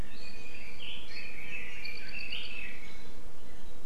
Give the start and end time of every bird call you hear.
[0.00, 0.60] Iiwi (Drepanis coccinea)
[0.50, 3.20] Red-billed Leiothrix (Leiothrix lutea)

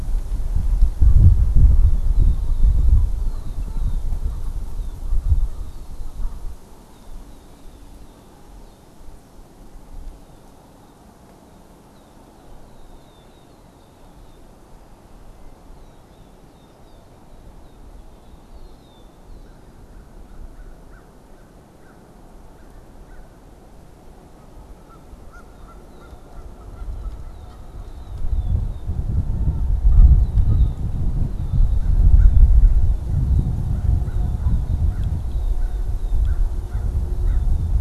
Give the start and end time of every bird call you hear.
[19.35, 23.45] American Crow (Corvus brachyrhynchos)
[24.25, 28.35] Canada Goose (Branta canadensis)
[25.45, 37.75] Red-winged Blackbird (Agelaius phoeniceus)
[33.65, 37.65] American Crow (Corvus brachyrhynchos)

